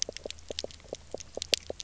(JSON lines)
{"label": "biophony, knock", "recorder": "SoundTrap 300"}